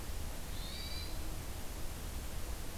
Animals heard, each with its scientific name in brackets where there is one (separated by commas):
Hermit Thrush (Catharus guttatus)